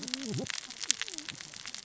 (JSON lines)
{"label": "biophony, cascading saw", "recorder": "SoundTrap 600 or HydroMoth"}